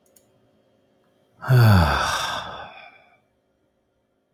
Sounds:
Sigh